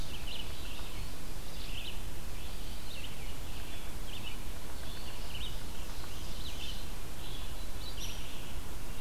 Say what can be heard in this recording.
Red-eyed Vireo, Ovenbird, Hairy Woodpecker